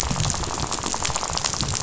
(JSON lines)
{"label": "biophony, rattle", "recorder": "SoundTrap 500"}